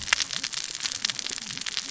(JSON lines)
{"label": "biophony, cascading saw", "recorder": "SoundTrap 600 or HydroMoth"}